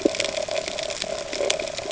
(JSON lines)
{"label": "ambient", "recorder": "HydroMoth"}